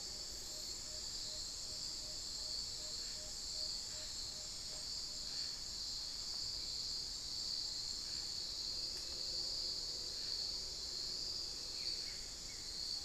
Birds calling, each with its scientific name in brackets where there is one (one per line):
Amazonian Barred-Woodcreeper (Dendrocolaptes certhia)
Tawny-bellied Screech-Owl (Megascops watsonii)